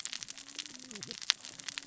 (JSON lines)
{"label": "biophony, cascading saw", "recorder": "SoundTrap 600 or HydroMoth"}